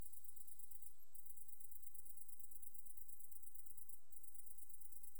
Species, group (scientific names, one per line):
Tettigonia viridissima
Orthoptera